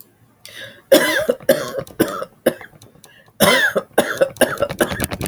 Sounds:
Cough